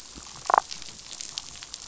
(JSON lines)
{"label": "biophony, damselfish", "recorder": "SoundTrap 500"}